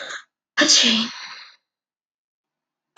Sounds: Sneeze